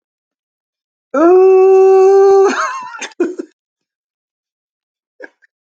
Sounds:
Sigh